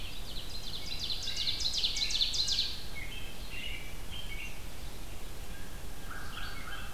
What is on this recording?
Ovenbird, Red-eyed Vireo, American Robin, Blue Jay, American Crow